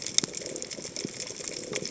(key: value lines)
label: biophony
recorder: HydroMoth